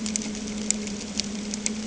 {"label": "anthrophony, boat engine", "recorder": "HydroMoth"}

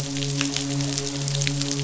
{"label": "biophony, midshipman", "recorder": "SoundTrap 500"}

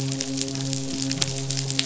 {"label": "biophony, midshipman", "recorder": "SoundTrap 500"}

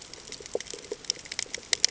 {"label": "ambient", "recorder": "HydroMoth"}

